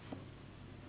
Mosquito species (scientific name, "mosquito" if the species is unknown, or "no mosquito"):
Anopheles gambiae s.s.